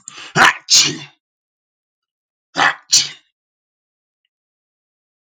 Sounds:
Sneeze